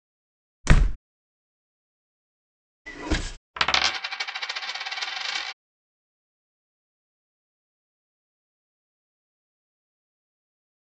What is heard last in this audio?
coin